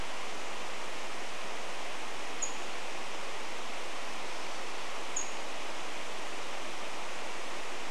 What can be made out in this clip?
Pacific-slope Flycatcher call